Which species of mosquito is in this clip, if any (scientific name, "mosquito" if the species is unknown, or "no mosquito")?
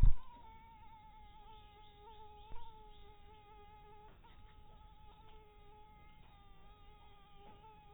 mosquito